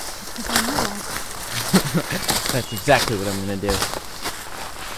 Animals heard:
forest ambience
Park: Katahdin Woods and Waters National Monument